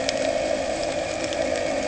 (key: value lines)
label: anthrophony, boat engine
recorder: HydroMoth